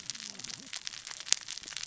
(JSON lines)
{"label": "biophony, cascading saw", "recorder": "SoundTrap 600 or HydroMoth"}